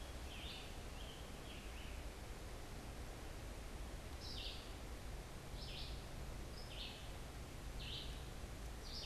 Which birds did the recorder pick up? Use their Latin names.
Piranga olivacea, Vireo olivaceus